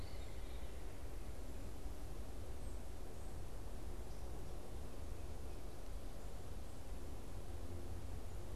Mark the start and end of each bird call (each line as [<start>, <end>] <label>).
[0.00, 0.52] Red-bellied Woodpecker (Melanerpes carolinus)
[0.00, 1.02] Veery (Catharus fuscescens)
[0.00, 8.55] Tufted Titmouse (Baeolophus bicolor)